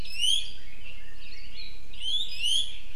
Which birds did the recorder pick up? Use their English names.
Iiwi, Red-billed Leiothrix